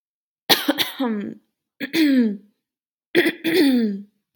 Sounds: Throat clearing